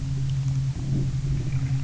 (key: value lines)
label: anthrophony, boat engine
recorder: SoundTrap 300